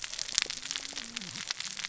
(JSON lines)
{"label": "biophony, cascading saw", "recorder": "SoundTrap 600 or HydroMoth"}